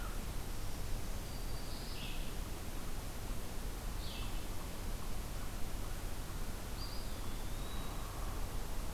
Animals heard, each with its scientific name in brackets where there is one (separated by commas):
Eastern Wood-Pewee (Contopus virens), Black-throated Green Warbler (Setophaga virens), Red-eyed Vireo (Vireo olivaceus), American Crow (Corvus brachyrhynchos)